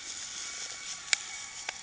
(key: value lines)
label: anthrophony, boat engine
recorder: HydroMoth